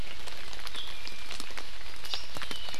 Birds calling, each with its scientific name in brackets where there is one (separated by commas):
Hawaii Amakihi (Chlorodrepanis virens), Iiwi (Drepanis coccinea)